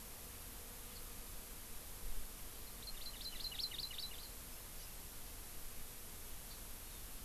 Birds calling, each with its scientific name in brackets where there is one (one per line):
Hawaii Amakihi (Chlorodrepanis virens)